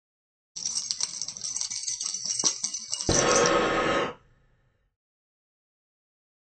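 First keys jangle. Over it, breathing can be heard.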